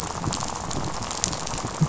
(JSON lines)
{"label": "biophony, rattle", "recorder": "SoundTrap 500"}